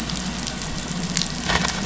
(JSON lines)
{"label": "anthrophony, boat engine", "recorder": "SoundTrap 500"}